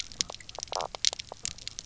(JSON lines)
{"label": "biophony, knock croak", "recorder": "SoundTrap 300"}